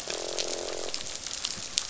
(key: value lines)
label: biophony, croak
recorder: SoundTrap 500